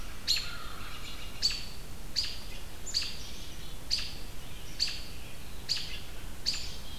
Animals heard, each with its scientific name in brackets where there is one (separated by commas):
American Crow (Corvus brachyrhynchos), American Robin (Turdus migratorius)